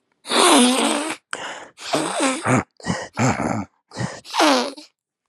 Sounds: Sniff